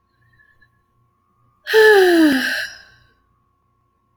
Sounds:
Sigh